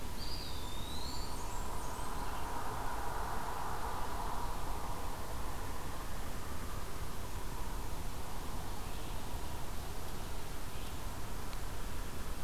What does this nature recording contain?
Eastern Wood-Pewee, Blackburnian Warbler